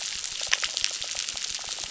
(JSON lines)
{"label": "biophony, crackle", "recorder": "SoundTrap 600"}